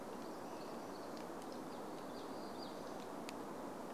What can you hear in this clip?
American Robin song, warbler song